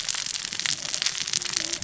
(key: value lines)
label: biophony, cascading saw
recorder: SoundTrap 600 or HydroMoth